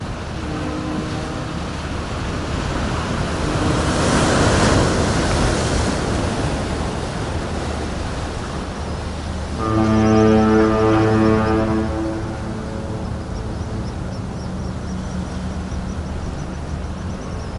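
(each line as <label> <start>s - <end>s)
Waves rolling continuously onto the shore. 0.0s - 17.6s
A boat horn sounds faintly in the distance. 0.3s - 1.9s
A strong wave crashes against the shoreline. 2.6s - 7.6s
A deep, resonant boat horn sounds. 9.2s - 12.5s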